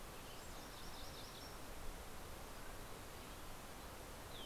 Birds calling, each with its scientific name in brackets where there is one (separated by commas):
Yellow-rumped Warbler (Setophaga coronata), Mountain Quail (Oreortyx pictus), Green-tailed Towhee (Pipilo chlorurus)